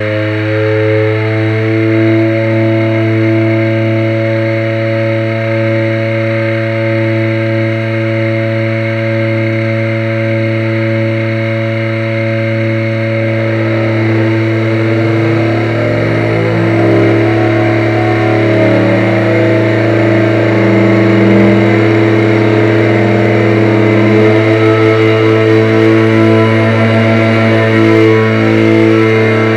is anyone heard talking?
no